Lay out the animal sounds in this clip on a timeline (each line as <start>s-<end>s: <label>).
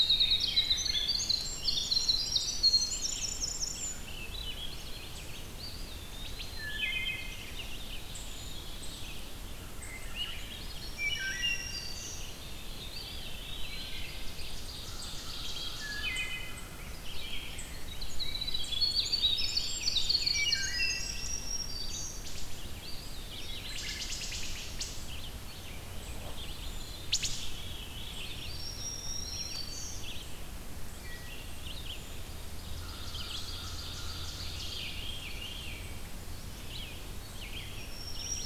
0.0s-4.3s: Winter Wren (Troglodytes hiemalis)
0.0s-38.5s: Red-eyed Vireo (Vireo olivaceus)
1.3s-3.0s: Black-throated Green Warbler (Setophaga virens)
4.0s-5.5s: Swainson's Thrush (Catharus ustulatus)
5.4s-6.8s: Eastern Wood-Pewee (Contopus virens)
6.4s-7.5s: Wood Thrush (Hylocichla mustelina)
7.1s-9.5s: Veery (Catharus fuscescens)
9.8s-11.3s: Swainson's Thrush (Catharus ustulatus)
10.4s-12.3s: Black-throated Green Warbler (Setophaga virens)
10.7s-12.1s: Wood Thrush (Hylocichla mustelina)
11.7s-13.8s: Veery (Catharus fuscescens)
12.7s-14.1s: Eastern Wood-Pewee (Contopus virens)
13.8s-16.4s: Ovenbird (Seiurus aurocapilla)
15.4s-17.0s: Wood Thrush (Hylocichla mustelina)
18.0s-21.3s: Winter Wren (Troglodytes hiemalis)
20.3s-21.4s: Wood Thrush (Hylocichla mustelina)
20.8s-22.4s: Black-throated Green Warbler (Setophaga virens)
22.2s-22.5s: Wood Thrush (Hylocichla mustelina)
22.7s-23.9s: Eastern Wood-Pewee (Contopus virens)
23.7s-24.9s: Wood Thrush (Hylocichla mustelina)
26.7s-28.6s: Veery (Catharus fuscescens)
27.0s-27.3s: Wood Thrush (Hylocichla mustelina)
28.3s-30.1s: Black-throated Green Warbler (Setophaga virens)
30.9s-31.6s: Wood Thrush (Hylocichla mustelina)
32.3s-35.0s: Ovenbird (Seiurus aurocapilla)
32.7s-34.5s: American Crow (Corvus brachyrhynchos)
34.4s-36.0s: Veery (Catharus fuscescens)
37.6s-38.5s: Black-throated Green Warbler (Setophaga virens)